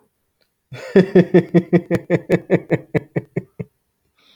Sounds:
Laughter